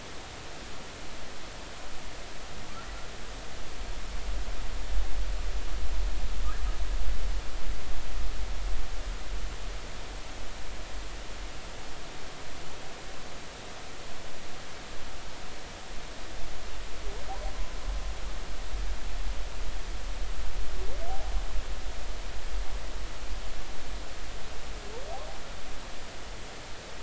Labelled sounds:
21.1	21.3	humpback whale, 0.80 to 0.90 kHz

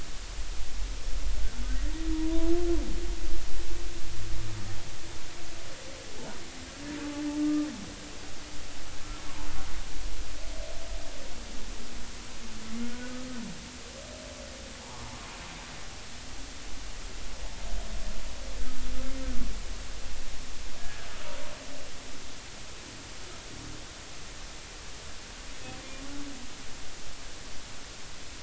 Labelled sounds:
2.1	2.5	humpback whale, 0.90 to 1.0 kHz
7.4	7.7	humpback whale, 1.2 to 1.3 kHz
12.8	13.1	humpback whale, 1.4 to 1.5 kHz
14.8	15.3	humpback whale, 0.80 to 1.2 kHz
20.8	21.1	humpback whale, 1.5 to 1.8 kHz

